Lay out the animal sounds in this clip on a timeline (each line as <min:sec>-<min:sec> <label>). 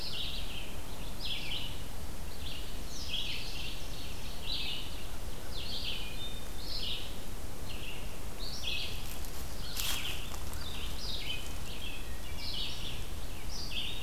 0:00.0-0:14.0 Red-eyed Vireo (Vireo olivaceus)
0:02.8-0:04.4 Ovenbird (Seiurus aurocapilla)
0:05.8-0:06.8 Wood Thrush (Hylocichla mustelina)
0:11.2-0:12.5 Wood Thrush (Hylocichla mustelina)